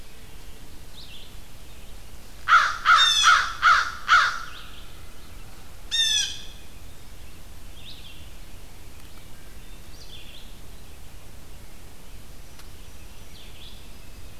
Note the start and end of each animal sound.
[0.00, 13.83] Red-eyed Vireo (Vireo olivaceus)
[2.20, 4.85] American Crow (Corvus brachyrhynchos)
[2.82, 3.47] Blue Jay (Cyanocitta cristata)
[5.68, 6.87] Blue Jay (Cyanocitta cristata)

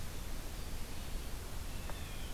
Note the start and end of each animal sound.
[1.56, 2.34] Blue Jay (Cyanocitta cristata)

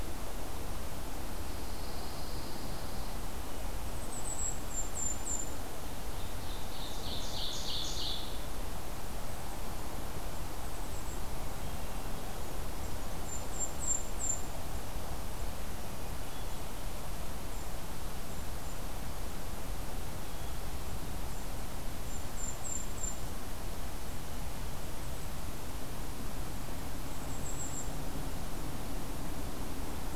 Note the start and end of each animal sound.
[1.41, 3.19] Pine Warbler (Setophaga pinus)
[3.85, 5.53] Golden-crowned Kinglet (Regulus satrapa)
[6.13, 8.23] Ovenbird (Seiurus aurocapilla)
[9.04, 11.29] Golden-crowned Kinglet (Regulus satrapa)
[13.17, 14.62] Golden-crowned Kinglet (Regulus satrapa)
[16.00, 16.87] Hermit Thrush (Catharus guttatus)
[17.42, 18.81] Golden-crowned Kinglet (Regulus satrapa)
[20.15, 20.76] Hermit Thrush (Catharus guttatus)
[21.11, 23.29] Golden-crowned Kinglet (Regulus satrapa)
[26.84, 28.01] Golden-crowned Kinglet (Regulus satrapa)

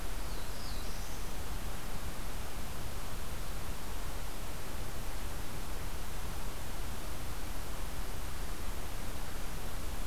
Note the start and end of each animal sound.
[0.00, 1.49] Black-throated Blue Warbler (Setophaga caerulescens)

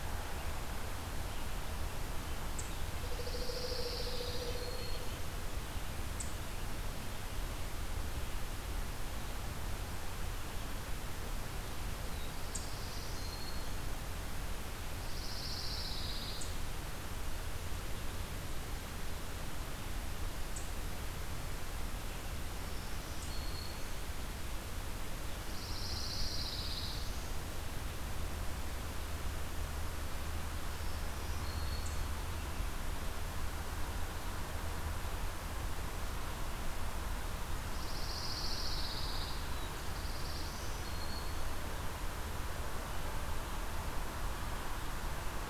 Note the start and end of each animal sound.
[0.00, 2.73] Eastern Chipmunk (Tamias striatus)
[2.99, 4.68] Pine Warbler (Setophaga pinus)
[3.03, 4.97] Pileated Woodpecker (Dryocopus pileatus)
[3.96, 5.18] Black-throated Green Warbler (Setophaga virens)
[6.06, 31.98] Eastern Chipmunk (Tamias striatus)
[12.01, 13.93] Black-throated Green Warbler (Setophaga virens)
[15.00, 16.53] Pine Warbler (Setophaga pinus)
[22.57, 23.99] Black-throated Green Warbler (Setophaga virens)
[25.38, 27.43] Pine Warbler (Setophaga pinus)
[30.72, 32.16] Black-throated Green Warbler (Setophaga virens)
[37.66, 39.47] Pine Warbler (Setophaga pinus)
[39.35, 40.86] Black-throated Blue Warbler (Setophaga caerulescens)
[40.46, 41.66] Black-throated Green Warbler (Setophaga virens)

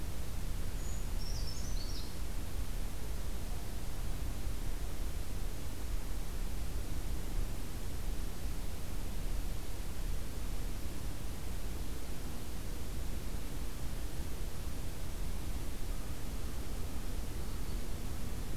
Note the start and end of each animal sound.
[0.72, 2.13] Brown Creeper (Certhia americana)

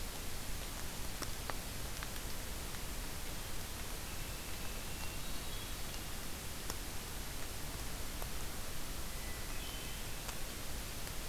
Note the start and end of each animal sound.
[5.05, 6.30] Hermit Thrush (Catharus guttatus)
[9.06, 10.09] Hermit Thrush (Catharus guttatus)

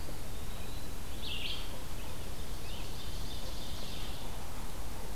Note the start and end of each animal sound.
[0.01, 0.93] Eastern Wood-Pewee (Contopus virens)
[1.08, 1.75] Red-eyed Vireo (Vireo olivaceus)
[2.54, 4.19] Ovenbird (Seiurus aurocapilla)

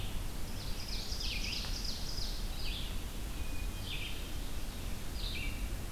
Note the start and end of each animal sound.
[0.00, 5.91] Red-eyed Vireo (Vireo olivaceus)
[0.38, 2.48] Ovenbird (Seiurus aurocapilla)
[3.14, 4.49] Hermit Thrush (Catharus guttatus)

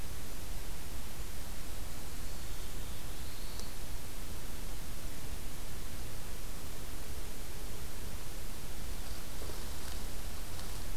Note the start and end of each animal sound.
[2.27, 3.80] Black-throated Blue Warbler (Setophaga caerulescens)

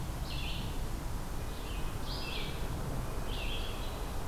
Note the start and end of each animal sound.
[0.00, 4.28] Red-eyed Vireo (Vireo olivaceus)
[1.27, 4.28] Red-breasted Nuthatch (Sitta canadensis)

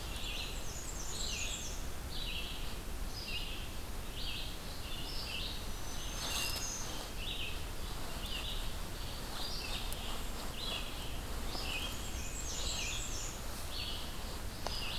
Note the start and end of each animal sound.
[0.00, 14.98] Red-eyed Vireo (Vireo olivaceus)
[0.09, 1.92] Black-and-white Warbler (Mniotilta varia)
[5.74, 6.92] Black-throated Green Warbler (Setophaga virens)
[11.47, 13.51] Black-and-white Warbler (Mniotilta varia)

